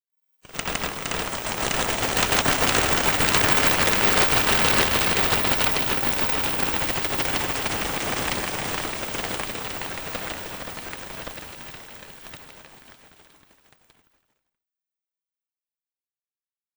Does it sound like a lot of wings are flapping?
yes